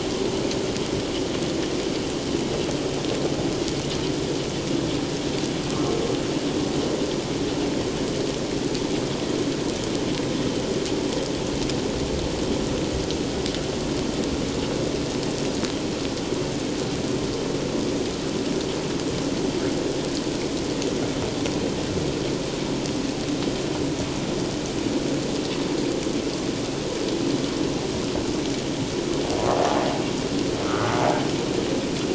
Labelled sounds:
30.6	30.9	humpback whale, 1.2 to 1.5 kHz

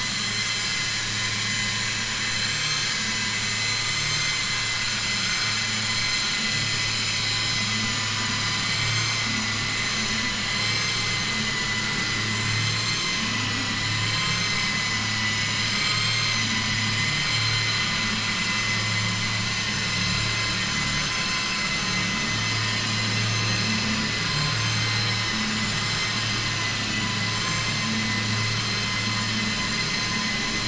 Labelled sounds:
8.6	9.2	vessel noise, 1.1 to 7.4 kHz

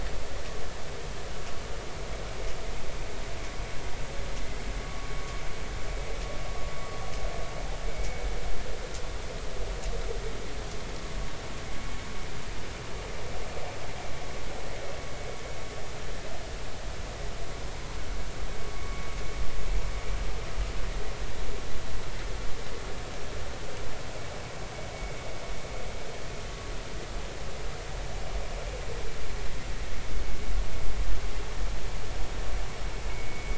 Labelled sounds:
33.1	33.5	vessel noise, 2.1 to 2.3 kHz

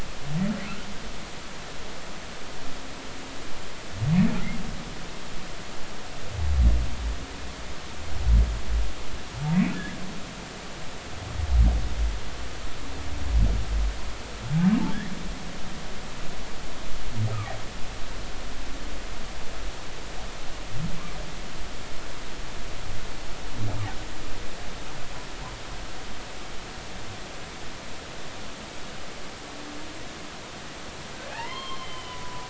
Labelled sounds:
31.3	32.4	humpback whale, 0.80 to 3.3 kHz

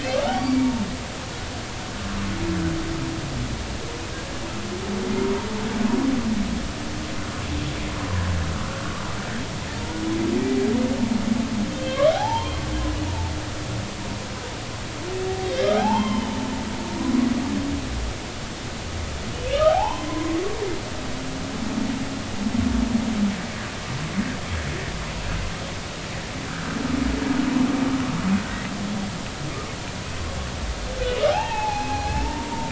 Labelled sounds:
0.0	0.9	humpback whale, 0.86 to 2.9 kHz
11.7	12.6	humpback whale, 0.80 to 3.3 kHz
13.0	13.3	humpback whale, 0.83 to 0.99 kHz
15.8	16.4	humpback whale, 0.80 to 3.2 kHz
19.8	20.1	humpback whale, 3.0 to 3.1 kHz
20.7	21.4	humpback whale, 0.80 to 1.1 kHz
26.5	26.8	humpback whale, 1.2 to 1.8 kHz
31.3	32.6	humpback whale, 0.80 to 3.3 kHz

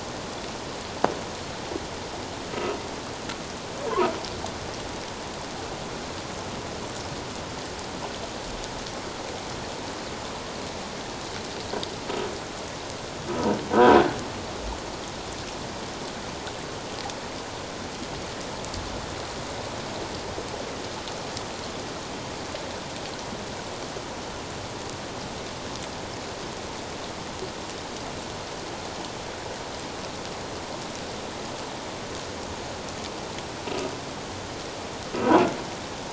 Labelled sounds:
13.7	14.0	croaking sound likely from a nearby submerged object, 1.4 to 1.7 kHz

